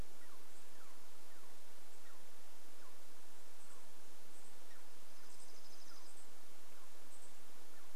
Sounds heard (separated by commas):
unidentified bird chip note, Douglas squirrel chirp, Chipping Sparrow song